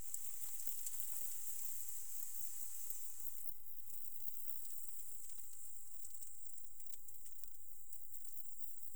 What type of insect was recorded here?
orthopteran